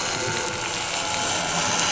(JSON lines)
{"label": "anthrophony, boat engine", "recorder": "SoundTrap 300"}